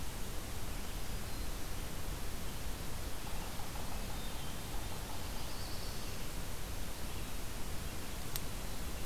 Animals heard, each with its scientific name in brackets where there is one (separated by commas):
Black-throated Blue Warbler (Setophaga caerulescens), Black-throated Green Warbler (Setophaga virens), Hermit Thrush (Catharus guttatus)